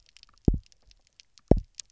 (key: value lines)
label: biophony, double pulse
recorder: SoundTrap 300